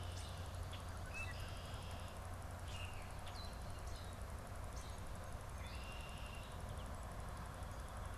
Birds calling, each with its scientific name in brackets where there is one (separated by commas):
Common Grackle (Quiscalus quiscula), Red-winged Blackbird (Agelaius phoeniceus), European Starling (Sturnus vulgaris)